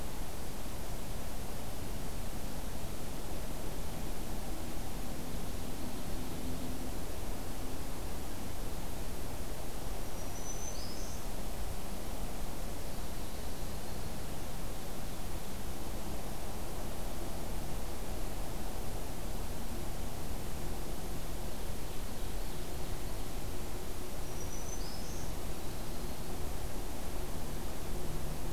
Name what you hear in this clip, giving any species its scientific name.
Setophaga virens, Seiurus aurocapilla